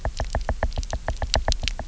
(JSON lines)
{"label": "biophony, knock", "recorder": "SoundTrap 300"}